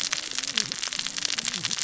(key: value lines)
label: biophony, cascading saw
recorder: SoundTrap 600 or HydroMoth